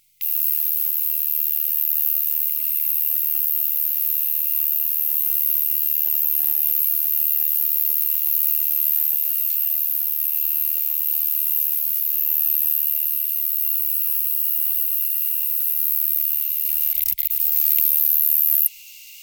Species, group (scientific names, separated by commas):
Ruspolia nitidula, Orthoptera